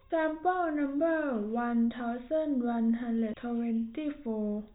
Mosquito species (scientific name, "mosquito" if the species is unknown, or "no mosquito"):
no mosquito